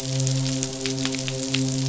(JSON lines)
{"label": "biophony, midshipman", "recorder": "SoundTrap 500"}